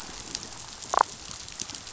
{"label": "biophony, damselfish", "recorder": "SoundTrap 500"}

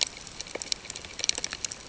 {"label": "ambient", "recorder": "HydroMoth"}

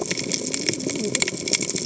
{"label": "biophony, cascading saw", "recorder": "HydroMoth"}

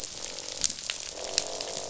{"label": "biophony, croak", "recorder": "SoundTrap 500"}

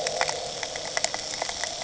{"label": "anthrophony, boat engine", "recorder": "HydroMoth"}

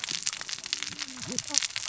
{"label": "biophony, cascading saw", "recorder": "SoundTrap 600 or HydroMoth"}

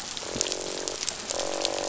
{"label": "biophony, croak", "recorder": "SoundTrap 500"}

